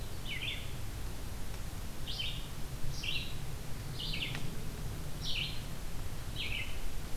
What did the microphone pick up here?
Yellow-rumped Warbler, Red-eyed Vireo